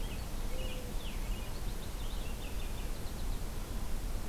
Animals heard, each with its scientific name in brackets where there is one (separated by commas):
Purple Finch (Haemorhous purpureus), Mourning Dove (Zenaida macroura)